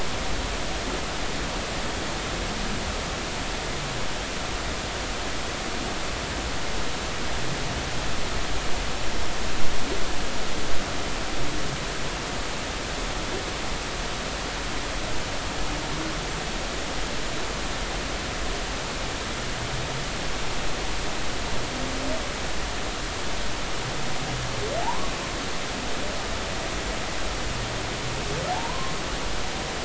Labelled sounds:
24.8	25.1	humpback whale, 0.80 to 1.2 kHz
28.5	28.9	humpback whale, 0.80 to 1.1 kHz

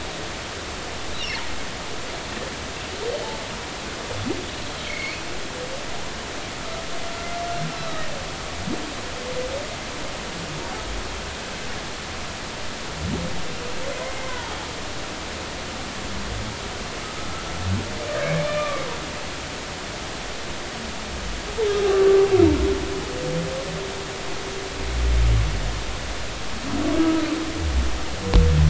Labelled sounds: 4.8	5.2	humpback whale, 2.0 to 4.5 kHz
7.8	8.1	humpback whale, 1.1 to 4.1 kHz
14.2	14.6	humpback whale, 0.80 to 1.1 kHz
18.4	18.8	humpback whale, 1.1 to 2.4 kHz
21.9	22.2	humpback whale, 1.1 to 1.2 kHz
27.0	27.2	humpback whale, 1.2 to 1.3 kHz

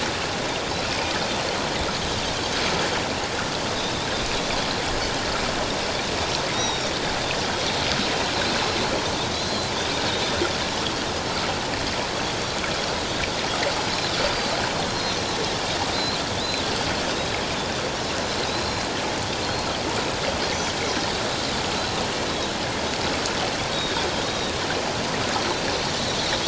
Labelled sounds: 6.5	6.9	Pacific white-sided dolphin, 3.7 to 5.9 kHz
9.3	9.7	Pacific white-sided dolphin, 3.8 to 4.2 kHz
14.2	14.5	Pacific white-sided dolphin, 4.5 to 4.8 kHz
14.9	16.6	Pacific white-sided dolphin, 3.3 to 4.3 kHz
18.5	18.9	Pacific white-sided dolphin, 3.7 to 6.9 kHz
19.4	19.7	Pacific white-sided dolphin, 4.1 to 4.3 kHz
20.8	21.1	Pacific white-sided dolphin, 5.6 to 5.9 kHz
23.7	24.6	Pacific white-sided dolphin, 3.5 to 3.8 kHz

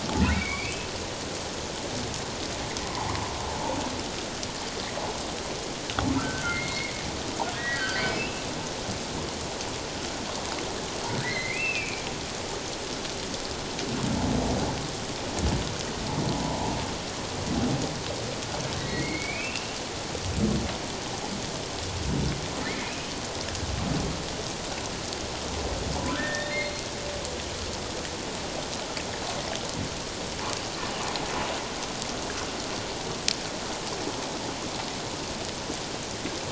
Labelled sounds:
0.3	0.9	humpback whale, 2.1 to 2.7 kHz
2.9	3.2	humpback whale, 0.78 to 1.2 kHz
6.2	7.0	humpback whale, 1.2 to 4.4 kHz
7.5	8.4	humpback whale, 1.5 to 3.0 kHz
11.2	12.0	humpback whale, 1.5 to 4.3 kHz
16.3	16.7	humpback whale, 0.81 to 1.0 kHz
18.8	19.8	humpback whale, 1.8 to 4.4 kHz
26.2	26.8	humpback whale, 1.6 to 4.3 kHz

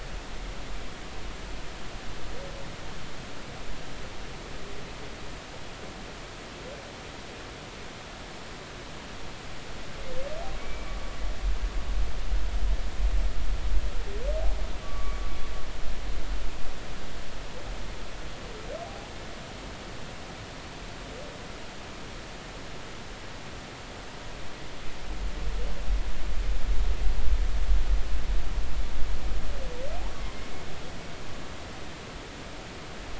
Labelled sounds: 10.6	11.0	humpback whale, 2.2 to 2.4 kHz
14.8	15.2	humpback whale, 1.1 to 1.2 kHz
18.8	19.1	humpback whale, 0.80 to 0.90 kHz
30.2	30.5	humpback whale, 2.0 to 2.2 kHz

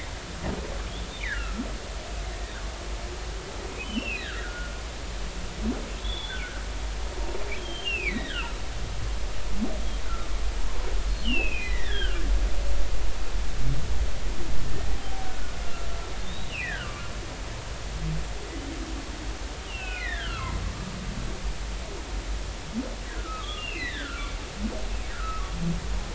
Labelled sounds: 1.2	1.6	humpback whale, 1.2 to 2.5 kHz
3.8	4.8	humpback whale, 1.3 to 3.1 kHz
6.0	6.6	humpback whale, 1.2 to 3.6 kHz
7.6	8.6	humpback whale, 1.2 to 4.0 kHz
11.2	12.2	humpback whale, 1.3 to 3.7 kHz
14.7	15.0	humpback whale, 1.7 to 2.0 kHz
15.2	16.9	humpback whale, 1.3 to 3.9 kHz
19.7	20.6	humpback whale, 0.90 to 4.3 kHz
23.1	24.3	humpback whale, 1.1 to 4.2 kHz
25.1	25.5	humpback whale, 1.1 to 1.5 kHz

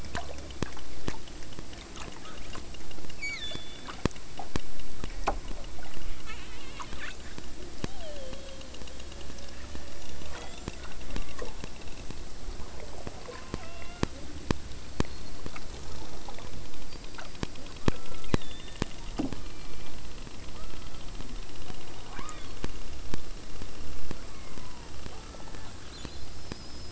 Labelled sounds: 3.2	4.1	killer whale, southern Alaska resident, 1.4 to 8.0 kHz
6.1	7.3	killer whale, southern Alaska resident, 0.59 to 8.0 kHz
7.8	11.7	killer whale, southern Alaska resident, 0.18 to 8.0 kHz
13.2	14.2	killer whale, southern Alaska resident, 0.44 to 6.4 kHz
17.8	18.9	killer whale, southern Alaska resident, 0.93 to 4.4 kHz
19.2	20.2	killer whale, southern Alaska resident, 0.59 to 2.8 kHz
20.5	21.2	killer whale, southern Alaska resident, 0.72 to 2.9 kHz
22.0	22.7	killer whale, southern Alaska resident, 0.49 to 6.4 kHz
24.1	25.8	killer whale, southern Alaska resident, 0.46 to 2.4 kHz

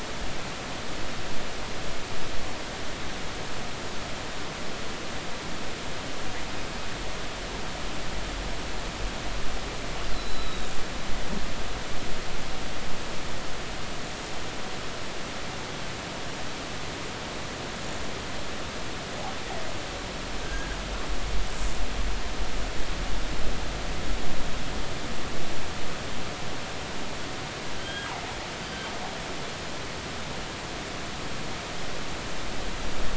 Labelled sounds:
10.1	10.7	killer whale, northern resident, G clan, 3.7 to 4.2 kHz
20.4	20.8	killer whale, northern resident, G clan, 1.4 to 1.7 kHz
27.8	28.1	killer whale, northern resident, G clan, GG subclan, call N28, 1.5 to 3.3 kHz

